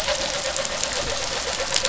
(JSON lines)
{"label": "anthrophony, boat engine", "recorder": "SoundTrap 500"}